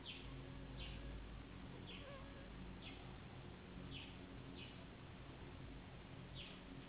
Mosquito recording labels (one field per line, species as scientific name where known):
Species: Anopheles gambiae s.s.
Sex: female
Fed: unfed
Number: one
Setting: insect culture